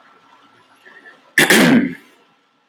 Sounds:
Throat clearing